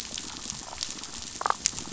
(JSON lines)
{"label": "biophony, damselfish", "recorder": "SoundTrap 500"}